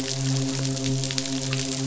{"label": "biophony, midshipman", "recorder": "SoundTrap 500"}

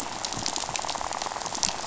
{"label": "biophony, rattle", "recorder": "SoundTrap 500"}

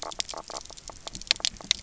{"label": "biophony, knock croak", "recorder": "SoundTrap 300"}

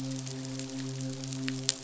{"label": "biophony, midshipman", "recorder": "SoundTrap 500"}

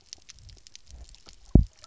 {"label": "biophony, double pulse", "recorder": "SoundTrap 300"}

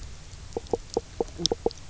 {"label": "biophony, knock croak", "recorder": "SoundTrap 300"}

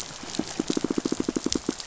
{"label": "biophony, pulse", "recorder": "SoundTrap 500"}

